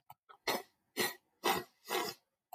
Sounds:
Sniff